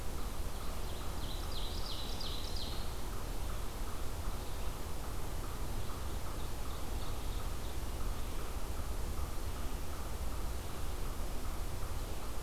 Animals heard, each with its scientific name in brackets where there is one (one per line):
unknown mammal
Ovenbird (Seiurus aurocapilla)